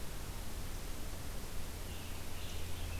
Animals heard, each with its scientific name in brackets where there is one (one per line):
Scarlet Tanager (Piranga olivacea)